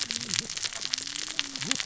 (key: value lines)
label: biophony, cascading saw
recorder: SoundTrap 600 or HydroMoth